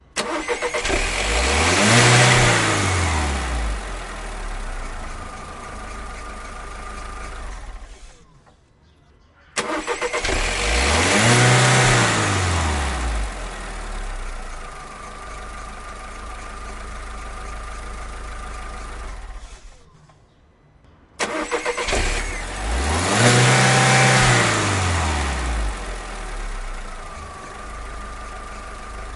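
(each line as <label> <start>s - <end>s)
A car is starting up. 0.2s - 7.1s
Car engine turning off. 7.2s - 8.4s
A car is starting up. 9.4s - 18.7s
Car engine turning off. 18.8s - 20.3s
A car is starting up. 21.0s - 25.8s
A car is running. 26.0s - 29.1s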